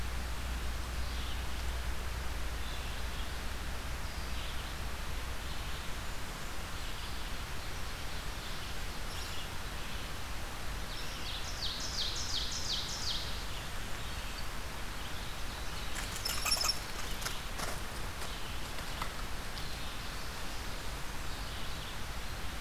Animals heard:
unknown mammal, Ovenbird (Seiurus aurocapilla), Red-eyed Vireo (Vireo olivaceus)

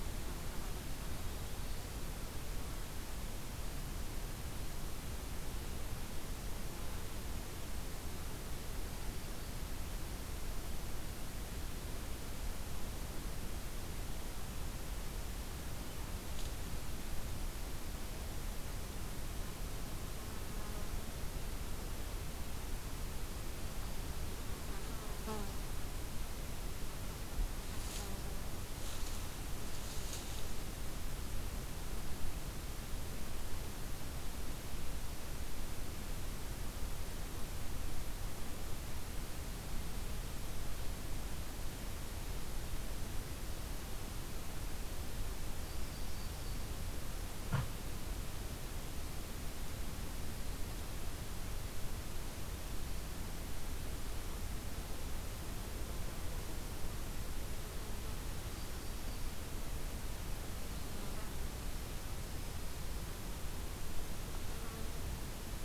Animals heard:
Yellow-rumped Warbler (Setophaga coronata)

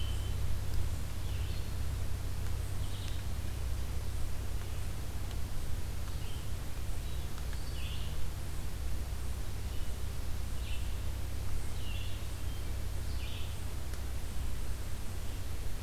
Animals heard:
Red-eyed Vireo (Vireo olivaceus), Hermit Thrush (Catharus guttatus)

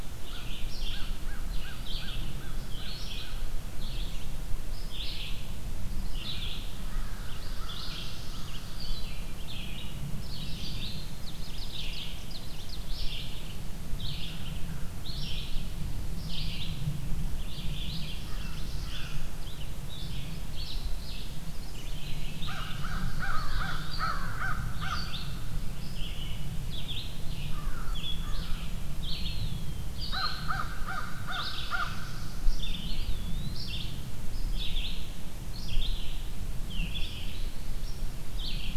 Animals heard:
Red-eyed Vireo (Vireo olivaceus), Eastern Wood-Pewee (Contopus virens), Ovenbird (Seiurus aurocapilla), American Crow (Corvus brachyrhynchos), Black-throated Blue Warbler (Setophaga caerulescens)

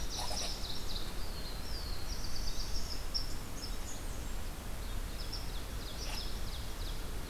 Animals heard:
Red Squirrel (Tamiasciurus hudsonicus), Blackburnian Warbler (Setophaga fusca), Black-throated Blue Warbler (Setophaga caerulescens), Ovenbird (Seiurus aurocapilla)

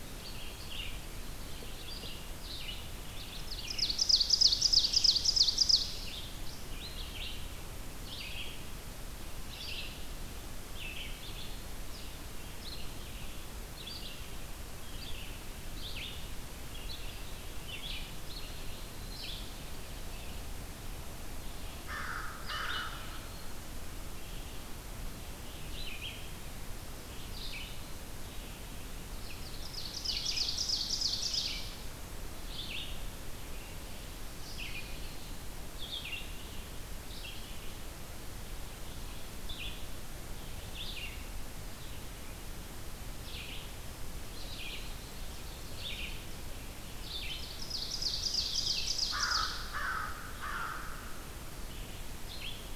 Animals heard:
American Crow (Corvus brachyrhynchos), Ovenbird (Seiurus aurocapilla), Red-eyed Vireo (Vireo olivaceus)

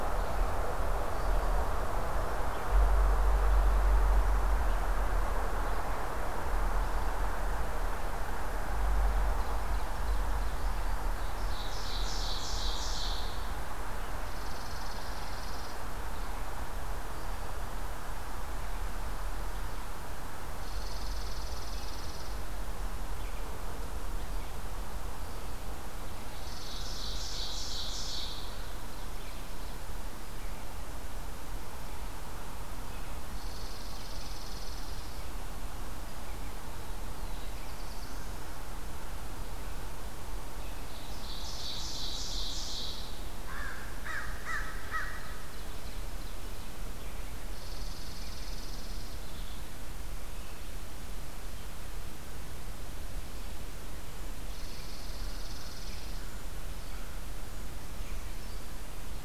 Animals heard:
Chipping Sparrow (Spizella passerina), Brown Creeper (Certhia americana), Ovenbird (Seiurus aurocapilla), American Crow (Corvus brachyrhynchos), Black-throated Blue Warbler (Setophaga caerulescens)

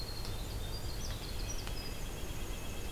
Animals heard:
Red-breasted Nuthatch (Sitta canadensis), White-breasted Nuthatch (Sitta carolinensis), Winter Wren (Troglodytes hiemalis)

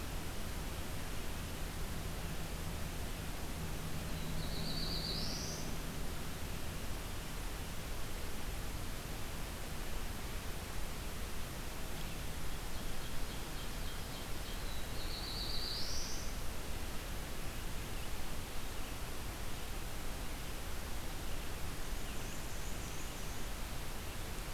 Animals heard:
Black-and-white Warbler (Mniotilta varia), Ovenbird (Seiurus aurocapilla), Black-throated Blue Warbler (Setophaga caerulescens)

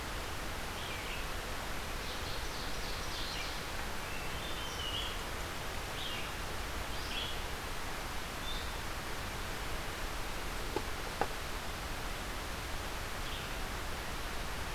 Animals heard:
Hermit Thrush (Catharus guttatus), Red-eyed Vireo (Vireo olivaceus), Ovenbird (Seiurus aurocapilla)

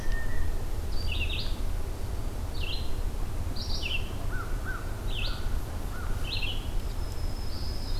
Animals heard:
Black-throated Green Warbler (Setophaga virens), Eastern Wood-Pewee (Contopus virens), American Crow (Corvus brachyrhynchos), Red-eyed Vireo (Vireo olivaceus), Blue Jay (Cyanocitta cristata)

